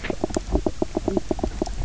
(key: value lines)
label: biophony, knock croak
recorder: SoundTrap 300